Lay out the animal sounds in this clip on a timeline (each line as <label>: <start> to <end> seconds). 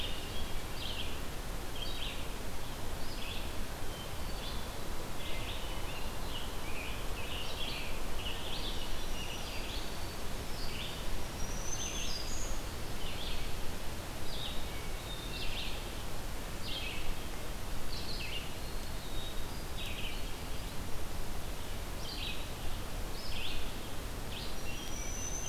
Red-eyed Vireo (Vireo olivaceus): 0.5 to 25.5 seconds
Hermit Thrush (Catharus guttatus): 3.7 to 5.0 seconds
Scarlet Tanager (Piranga olivacea): 5.5 to 10.1 seconds
Hermit Thrush (Catharus guttatus): 5.5 to 6.4 seconds
Black-throated Green Warbler (Setophaga virens): 8.5 to 9.9 seconds
Black-throated Green Warbler (Setophaga virens): 10.9 to 12.6 seconds
Hermit Thrush (Catharus guttatus): 14.8 to 15.9 seconds
Black-capped Chickadee (Poecile atricapillus): 18.6 to 19.6 seconds
Hermit Thrush (Catharus guttatus): 19.2 to 20.9 seconds
Black-throated Green Warbler (Setophaga virens): 24.4 to 25.5 seconds
Hermit Thrush (Catharus guttatus): 24.6 to 25.4 seconds